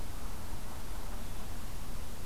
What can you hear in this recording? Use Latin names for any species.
forest ambience